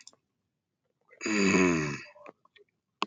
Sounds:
Throat clearing